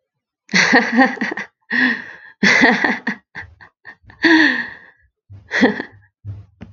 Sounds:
Laughter